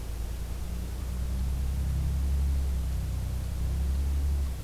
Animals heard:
forest ambience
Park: Acadia National Park